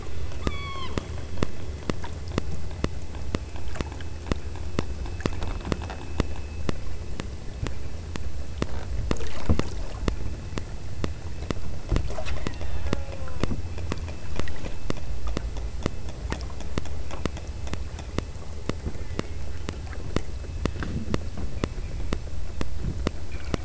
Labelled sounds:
0.5	1.1	killer whale, southern Alaska resident, 0.89 to 8.0 kHz
12.1	13.5	killer whale, southern Alaska resident, 0.43 to 3.8 kHz
18.9	19.6	killer whale, southern Alaska resident, 1.4 to 3.3 kHz

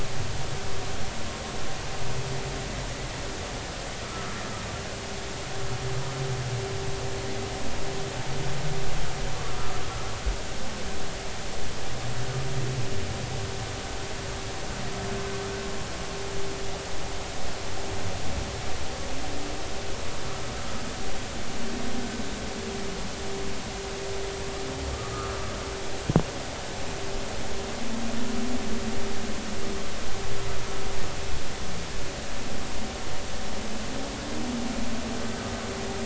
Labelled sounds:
4.0	4.3	humpback whale, 1.2 to 1.4 kHz
25.1	25.4	humpback whale, 1.1 to 1.5 kHz

